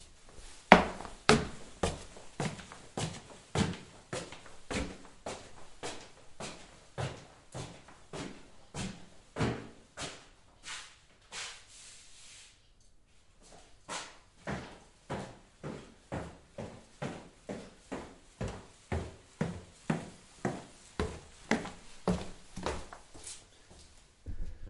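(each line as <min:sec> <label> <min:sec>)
0:00.7 Footsteps echoing on stairs. 0:11.7
0:13.9 Footsteps echoing on stairs. 0:23.5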